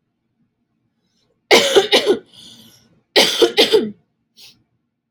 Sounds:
Cough